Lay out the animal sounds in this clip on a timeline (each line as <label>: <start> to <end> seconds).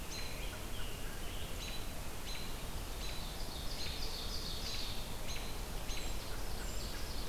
Scarlet Tanager (Piranga olivacea): 0.0 to 1.8 seconds
American Robin (Turdus migratorius): 0.0 to 7.3 seconds
Ovenbird (Seiurus aurocapilla): 2.9 to 5.2 seconds
Ovenbird (Seiurus aurocapilla): 6.2 to 7.3 seconds